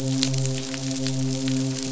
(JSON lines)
{"label": "biophony, midshipman", "recorder": "SoundTrap 500"}